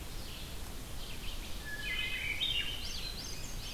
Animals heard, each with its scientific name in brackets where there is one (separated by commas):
Wood Thrush (Hylocichla mustelina), Red-eyed Vireo (Vireo olivaceus), Swainson's Thrush (Catharus ustulatus)